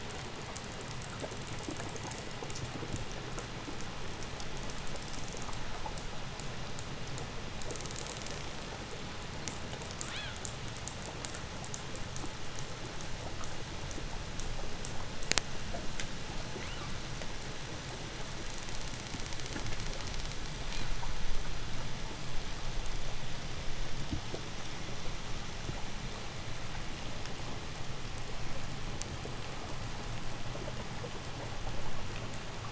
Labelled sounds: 9.8	10.6	killer whale, 1.1 to 4.5 kHz
16.3	17.1	killer whale, 0.93 to 5.4 kHz
20.4	21.2	killer whale, 1.1 to 8.0 kHz

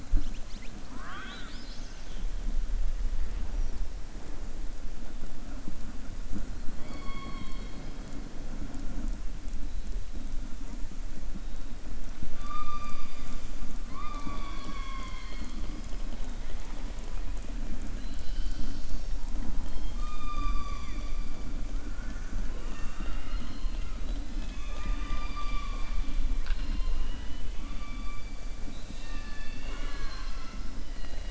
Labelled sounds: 0.8	2.3	killer whale, southern resident, 0.74 to 6.4 kHz
19.6	21.2	killer whale, southern resident, 0.99 to 6.0 kHz
28.6	30.7	killer whale, southern resident, 0.47 to 7.2 kHz

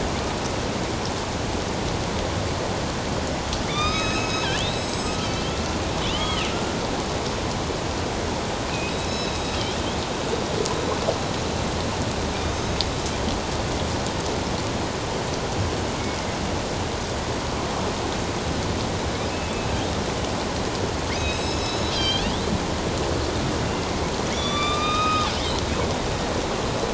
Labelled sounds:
3.7	5.2	killer whale, northern resident, A clan, AB subclan, 1.1 to 7.9 kHz
6.1	6.5	killer whale, northern resident, A clan, AB subclan, 1.2 to 3.4 kHz
8.9	9.5	killer whale, northern resident, A clan, AB subclan, 2.5 to 7.9 kHz
12.5	12.8	killer whale, northern resident, A clan, AB subclan, 6.1 to 6.5 kHz
21.1	22.3	killer whale, northern resident, A clan, AB subclan, 3.1 to 7.9 kHz
24.3	25.3	killer whale, northern resident, A clan, AB subclan, 1.1 to 6.3 kHz

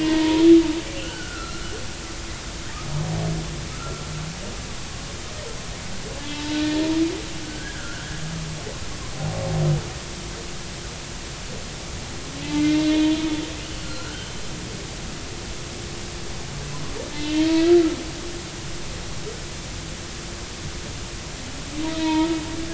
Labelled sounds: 0.0	1.8	humpback whale, 0.86 to 3.1 kHz
3.7	4.1	humpback whale, 1.2 to 1.4 kHz
6.2	6.9	humpback whale, 0.83 to 3.0 kHz
7.4	8.2	humpback whale, 1.3 to 1.8 kHz
12.5	13.1	humpback whale, 2.0 to 3.5 kHz
13.6	14.3	humpback whale, 1.3 to 3.1 kHz
17.2	18.0	humpback whale, 1.2 to 3.2 kHz
21.9	22.4	humpback whale, 0.86 to 2.6 kHz

